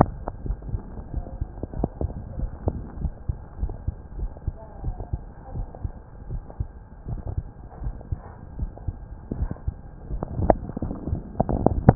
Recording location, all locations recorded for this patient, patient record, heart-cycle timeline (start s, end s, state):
mitral valve (MV)
aortic valve (AV)+pulmonary valve (PV)+tricuspid valve (TV)+mitral valve (MV)
#Age: Adolescent
#Sex: Male
#Height: 154.0 cm
#Weight: 35.7 kg
#Pregnancy status: False
#Murmur: Absent
#Murmur locations: nan
#Most audible location: nan
#Systolic murmur timing: nan
#Systolic murmur shape: nan
#Systolic murmur grading: nan
#Systolic murmur pitch: nan
#Systolic murmur quality: nan
#Diastolic murmur timing: nan
#Diastolic murmur shape: nan
#Diastolic murmur grading: nan
#Diastolic murmur pitch: nan
#Diastolic murmur quality: nan
#Outcome: Abnormal
#Campaign: 2015 screening campaign
0.00	0.44	unannotated
0.44	0.56	S1
0.56	0.69	systole
0.69	0.80	S2
0.80	1.11	diastole
1.11	1.26	S1
1.26	1.37	systole
1.37	1.48	S2
1.48	1.75	diastole
1.75	1.90	S1
1.90	2.02	systole
2.02	2.12	S2
2.12	2.38	diastole
2.38	2.52	S1
2.52	2.66	systole
2.66	2.78	S2
2.78	3.00	diastole
3.00	3.12	S1
3.12	3.27	systole
3.27	3.36	S2
3.36	3.60	diastole
3.60	3.72	S1
3.72	3.86	systole
3.86	3.96	S2
3.96	4.18	diastole
4.18	4.30	S1
4.30	4.42	systole
4.42	4.56	S2
4.56	4.84	diastole
4.84	4.96	S1
4.96	5.10	systole
5.10	5.22	S2
5.22	5.53	diastole
5.53	5.68	S1
5.68	5.80	systole
5.80	5.92	S2
5.92	6.27	diastole
6.27	6.42	S1
6.42	6.56	systole
6.56	6.70	S2
6.70	7.06	diastole
7.06	7.22	S1
7.22	7.34	systole
7.34	7.46	S2
7.46	7.77	diastole
7.77	7.94	S1
7.94	8.06	systole
8.06	8.20	S2
8.20	8.55	diastole
8.55	8.70	S1
8.70	8.83	systole
8.83	8.96	S2
8.96	9.25	diastole
9.25	11.95	unannotated